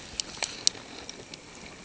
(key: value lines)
label: ambient
recorder: HydroMoth